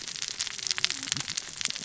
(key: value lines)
label: biophony, cascading saw
recorder: SoundTrap 600 or HydroMoth